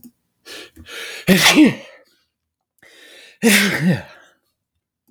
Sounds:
Sneeze